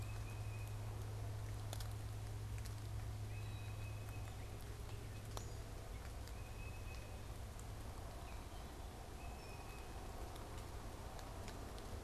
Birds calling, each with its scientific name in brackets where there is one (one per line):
Tufted Titmouse (Baeolophus bicolor)